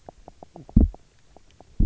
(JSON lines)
{"label": "biophony, knock croak", "recorder": "SoundTrap 300"}